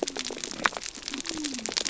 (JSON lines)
{"label": "biophony", "recorder": "SoundTrap 300"}